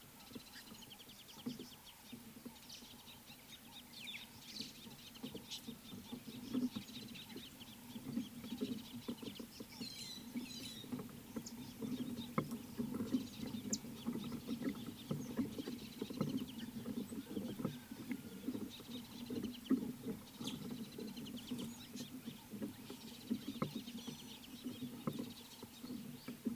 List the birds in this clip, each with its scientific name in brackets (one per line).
White-headed Buffalo-Weaver (Dinemellia dinemelli)
Scarlet-chested Sunbird (Chalcomitra senegalensis)